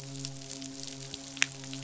{"label": "biophony, midshipman", "recorder": "SoundTrap 500"}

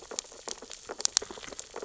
{"label": "biophony, sea urchins (Echinidae)", "recorder": "SoundTrap 600 or HydroMoth"}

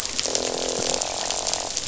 {"label": "biophony, croak", "recorder": "SoundTrap 500"}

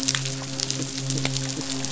{"label": "biophony, midshipman", "recorder": "SoundTrap 500"}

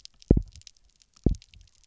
{"label": "biophony, double pulse", "recorder": "SoundTrap 300"}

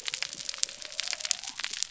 {"label": "biophony", "recorder": "SoundTrap 300"}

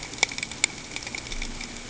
{"label": "ambient", "recorder": "HydroMoth"}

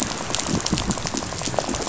{"label": "biophony, rattle", "recorder": "SoundTrap 500"}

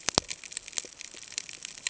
{"label": "ambient", "recorder": "HydroMoth"}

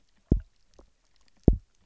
{"label": "biophony, double pulse", "recorder": "SoundTrap 300"}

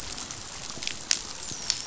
{"label": "biophony, dolphin", "recorder": "SoundTrap 500"}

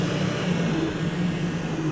{"label": "anthrophony, boat engine", "recorder": "SoundTrap 500"}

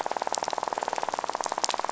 {"label": "biophony, rattle", "recorder": "SoundTrap 500"}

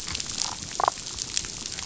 {"label": "biophony, damselfish", "recorder": "SoundTrap 500"}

